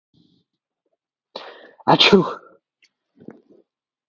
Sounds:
Sneeze